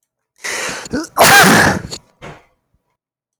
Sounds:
Throat clearing